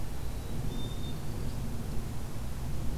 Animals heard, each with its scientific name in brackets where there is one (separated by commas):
Black-capped Chickadee (Poecile atricapillus)